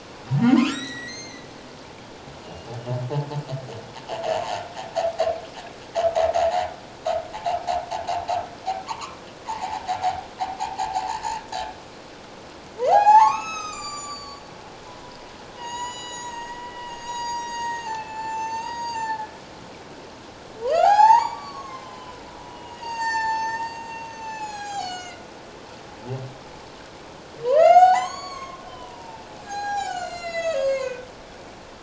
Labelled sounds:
1.1	1.5	humpback whale, 5.8 to 6.5 kHz
2.4	2.7	humpback whale, 2.8 to 3.0 kHz
7.3	7.6	humpback whale, 0.78 to 1.0 kHz
8.8	9.9	humpback whale, 0.78 to 1.4 kHz
10.8	11.8	humpback whale, 0.78 to 4.0 kHz
12.8	14.4	humpback whale, 0.78 to 7.9 kHz
15.6	19.3	humpback whale, 0.78 to 7.9 kHz
20.6	25.3	humpback whale, 0.78 to 8.0 kHz
27.4	31.1	humpback whale, 0.78 to 7.8 kHz

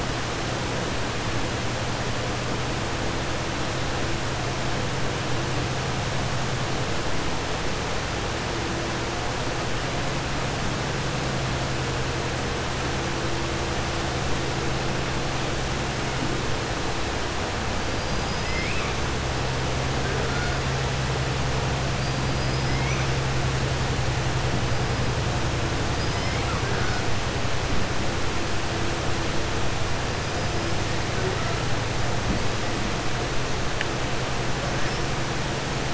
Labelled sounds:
18.4	18.9	killer whale, 2.0 to 3.6 kHz
22.3	23.1	killer whale, 4.4 to 6.0 kHz
25.9	26.9	killer whale, 0.74 to 5.3 kHz

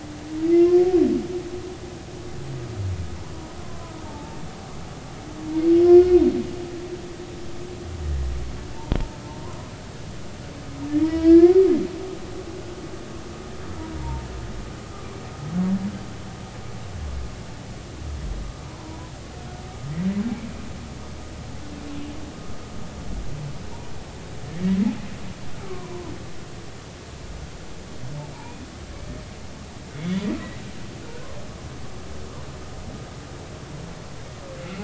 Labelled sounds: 4.0	4.4	humpback whale, 0.83 to 0.96 kHz
5.8	6.2	humpback whale, 1.4 to 1.5 kHz
8.7	9.0	humpback whale, 0.86 to 1.0 kHz
11.0	11.6	humpback whale, 1.6 to 4.4 kHz
12.0	12.3	humpback whale, 0.90 to 1.0 kHz
14.0	14.3	humpback whale, 0.83 to 0.99 kHz
18.7	19.1	humpback whale, 0.90 to 1.1 kHz
25.7	26.0	humpback whale, 0.86 to 1.2 kHz
28.4	28.7	humpback whale, 2.3 to 2.5 kHz
29.9	30.3	humpback whale, 2.1 to 3.5 kHz

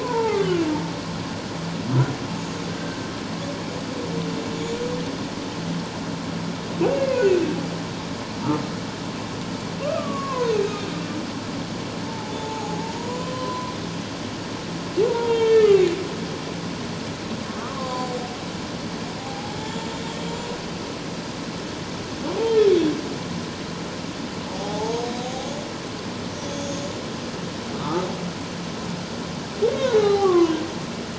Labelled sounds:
0.0	0.6	humpback whale, 0.81 to 2.3 kHz
2.8	3.1	humpback whale, 1.5 to 1.7 kHz
4.5	4.8	humpback whale, 6.8 to 7.1 kHz
6.9	7.4	humpback whale, 1.4 to 2.8 kHz
9.8	10.5	humpback whale, 0.91 to 1.4 kHz
12.1	13.7	humpback whale, 0.78 to 7.2 kHz
15.1	15.9	humpback whale, 0.88 to 3.3 kHz
17.7	18.1	humpback whale, 0.78 to 4.7 kHz
19.2	19.9	humpback whale, 0.78 to 0.97 kHz
24.5	25.5	humpback whale, 0.78 to 6.6 kHz
26.4	26.9	humpback whale, 3.3 to 6.6 kHz
27.7	28.1	humpback whale, 0.84 to 1.3 kHz
29.7	30.5	humpback whale, 0.78 to 4.1 kHz

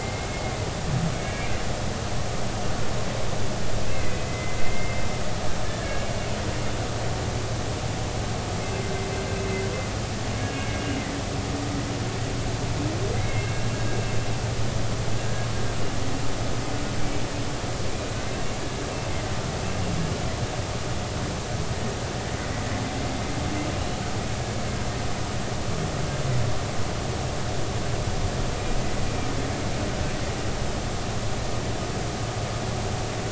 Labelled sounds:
0.0	1.5	humpback whale, 1.6 to 2.5 kHz
3.9	5.0	humpback whale, 2.0 to 2.6 kHz
5.6	6.1	humpback whale, 1.6 to 2.3 kHz
10.5	10.8	humpback whale, 2.1 to 2.3 kHz
13.1	13.7	humpback whale, 2.0 to 2.8 kHz

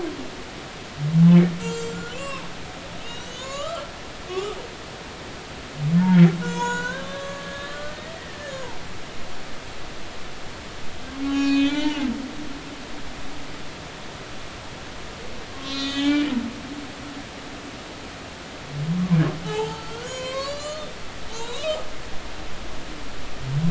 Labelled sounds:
1.6	2.5	humpback whale, 0.93 to 7.5 kHz
3.1	3.9	humpback whale, 0.96 to 7.3 kHz
4.3	4.6	humpback whale, 1.1 to 3.0 kHz
6.4	8.8	humpback whale, 0.86 to 7.5 kHz
11.2	12.0	humpback whale, 0.80 to 4.5 kHz
15.5	16.3	humpback whale, 1.0 to 7.4 kHz
19.4	21.8	humpback whale, 0.80 to 7.6 kHz

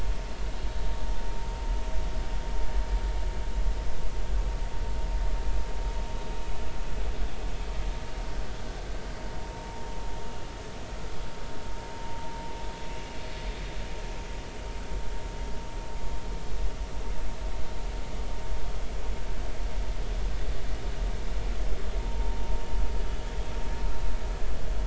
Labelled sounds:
22.0	22.4	vessel noise, 0.86 to 0.99 kHz

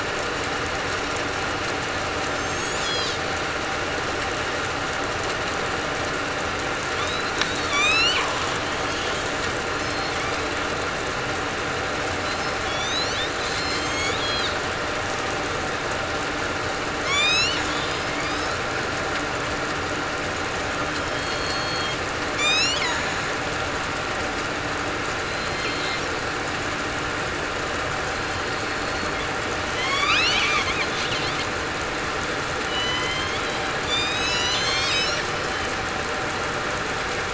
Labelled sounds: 2.3	2.7	killer whale, southern resident, 7.3 to 7.8 kHz
7.7	8.2	killer whale, southern resident, 2.2 to 4.6 kHz
9.7	10.1	killer whale, southern resident, 4.1 to 4.3 kHz
12.6	13.2	killer whale, southern resident, 3.3 to 7.0 kHz
13.7	14.2	killer whale, southern resident, 3.1 to 6.9 kHz
17.0	18.1	killer whale, southern resident, 2.1 to 5.8 kHz
21.0	22.0	killer whale, southern resident, 3.1 to 4.4 kHz
22.3	22.8	killer whale, southern resident, 3.5 to 7.4 kHz
25.2	25.8	killer whale, southern resident, 3.9 to 4.3 kHz
28.4	29.1	killer whale, southern resident, 4.3 to 4.4 kHz
29.7	30.1	killer whale, southern resident, 3.0 to 3.6 kHz
32.6	33.4	killer whale, southern resident, 1.9 to 4.1 kHz
33.8	35.2	killer whale, southern resident, 2.9 to 5.2 kHz

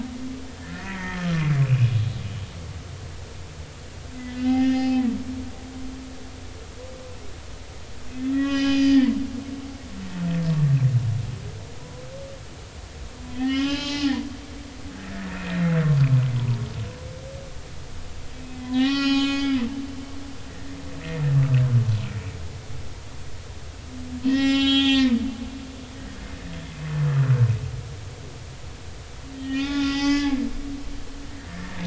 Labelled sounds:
0.5	1.9	humpback whale, 1.1 to 2.7 kHz
4.5	5.0	humpback whale, 0.80 to 3.0 kHz
8.1	9.1	humpback whale, 1.7 to 5.1 kHz
9.4	9.7	humpback whale, 1.6 to 1.7 kHz
11.8	12.0	humpback whale, 0.96 to 1.1 kHz
13.3	14.2	humpback whale, 0.80 to 5.2 kHz
15.3	16.6	humpback whale, 0.90 to 2.6 kHz
18.6	19.7	humpback whale, 0.80 to 7.3 kHz
20.4	20.7	humpback whale, 2.8 to 3.1 kHz
24.2	25.7	humpback whale, 0.80 to 7.5 kHz
29.4	30.3	humpback whale, 0.80 to 6.3 kHz
31.5	31.8	humpback whale, 1.7 to 1.9 kHz

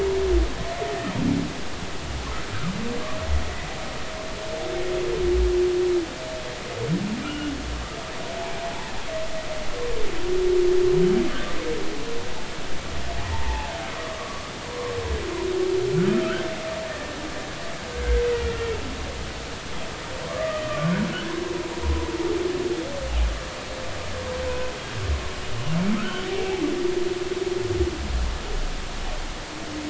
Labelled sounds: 7.2	7.5	humpback whale, 1.3 to 3.0 kHz
8.7	8.9	humpback whale, 0.80 to 1.0 kHz
13.3	14.9	humpback whale, 0.80 to 1.2 kHz
20.3	20.9	humpback whale, 1.0 to 2.6 kHz
26.0	26.3	humpback whale, 1.2 to 1.6 kHz

